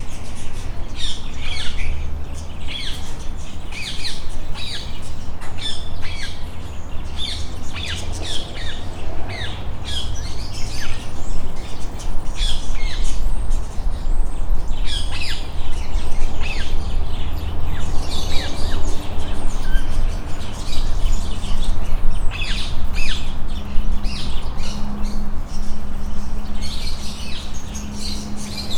Are these human sounds?
no